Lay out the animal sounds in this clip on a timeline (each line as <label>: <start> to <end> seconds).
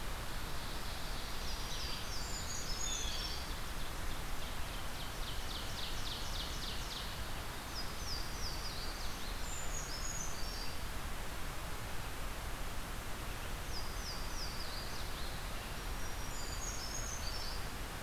Ovenbird (Seiurus aurocapilla): 0.1 to 2.1 seconds
Louisiana Waterthrush (Parkesia motacilla): 1.1 to 3.6 seconds
Brown Creeper (Certhia americana): 2.0 to 4.1 seconds
Ovenbird (Seiurus aurocapilla): 3.1 to 7.4 seconds
Louisiana Waterthrush (Parkesia motacilla): 7.4 to 9.4 seconds
Brown Creeper (Certhia americana): 9.3 to 11.2 seconds
Louisiana Waterthrush (Parkesia motacilla): 13.4 to 15.5 seconds
Black-throated Green Warbler (Setophaga virens): 15.6 to 16.9 seconds
Brown Creeper (Certhia americana): 16.3 to 17.7 seconds